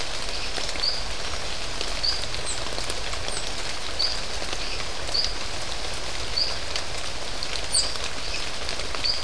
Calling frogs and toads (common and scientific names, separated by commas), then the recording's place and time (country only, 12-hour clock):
marbled tropical bullfrog (Adenomera marmorata)
Brazil, 6:45pm